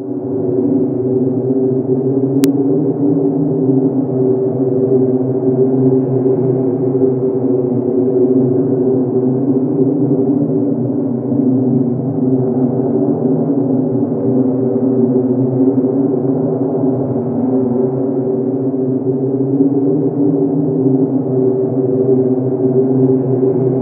Is someone crying?
no